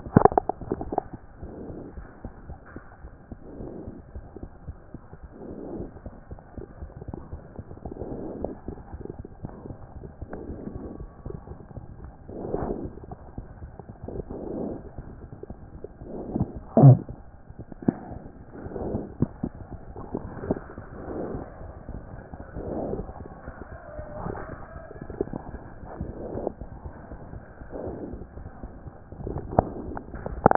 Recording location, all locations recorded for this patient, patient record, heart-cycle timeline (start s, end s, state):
aortic valve (AV)
aortic valve (AV)+mitral valve (MV)
#Age: Child
#Sex: Female
#Height: 100.0 cm
#Weight: 17.0 kg
#Pregnancy status: False
#Murmur: Unknown
#Murmur locations: nan
#Most audible location: nan
#Systolic murmur timing: nan
#Systolic murmur shape: nan
#Systolic murmur grading: nan
#Systolic murmur pitch: nan
#Systolic murmur quality: nan
#Diastolic murmur timing: nan
#Diastolic murmur shape: nan
#Diastolic murmur grading: nan
#Diastolic murmur pitch: nan
#Diastolic murmur quality: nan
#Outcome: Abnormal
#Campaign: 2014 screening campaign
0.00	1.42	unannotated
1.42	1.52	S1
1.52	1.68	systole
1.68	1.76	S2
1.76	1.96	diastole
1.96	2.06	S1
2.06	2.24	systole
2.24	2.32	S2
2.32	2.48	diastole
2.48	2.58	S1
2.58	2.74	systole
2.74	2.82	S2
2.82	3.04	diastole
3.04	3.12	S1
3.12	3.30	systole
3.30	3.38	S2
3.38	3.61	diastole
3.61	3.70	S1
3.70	3.86	systole
3.86	3.94	S2
3.94	4.14	diastole
4.14	4.24	S1
4.24	4.42	systole
4.42	4.50	S2
4.50	4.68	diastole
4.68	4.76	S1
4.76	4.94	systole
4.94	5.01	S2
5.01	5.22	diastole
5.22	30.56	unannotated